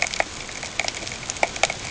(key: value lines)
label: ambient
recorder: HydroMoth